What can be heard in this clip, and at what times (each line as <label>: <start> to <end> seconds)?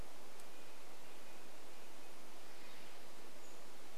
Red-breasted Nuthatch song: 0 to 4 seconds
Pacific-slope Flycatcher call: 2 to 4 seconds